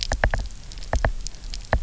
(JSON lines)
{"label": "biophony, knock", "recorder": "SoundTrap 300"}